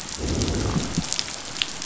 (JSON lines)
{"label": "biophony, growl", "recorder": "SoundTrap 500"}